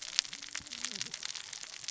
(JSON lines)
{"label": "biophony, cascading saw", "recorder": "SoundTrap 600 or HydroMoth"}